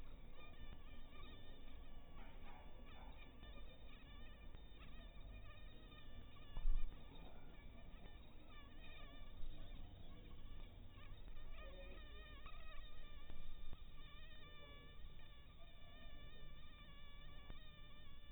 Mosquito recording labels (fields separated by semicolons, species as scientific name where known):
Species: mosquito; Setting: cup